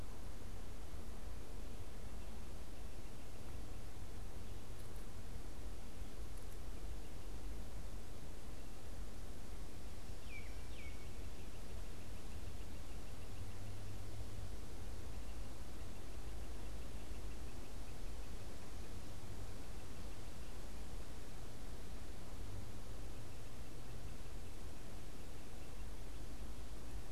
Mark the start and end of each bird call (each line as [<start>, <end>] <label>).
[10.07, 11.17] Baltimore Oriole (Icterus galbula)
[11.27, 26.37] Great Crested Flycatcher (Myiarchus crinitus)